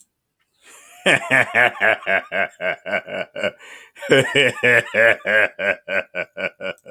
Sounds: Laughter